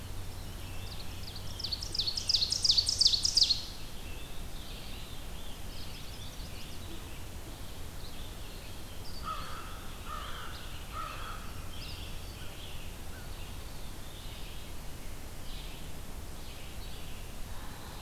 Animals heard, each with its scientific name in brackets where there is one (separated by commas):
Yellow-bellied Sapsucker (Sphyrapicus varius), Veery (Catharus fuscescens), Scarlet Tanager (Piranga olivacea), Red-eyed Vireo (Vireo olivaceus), American Crow (Corvus brachyrhynchos), Ovenbird (Seiurus aurocapilla), Chestnut-sided Warbler (Setophaga pensylvanica)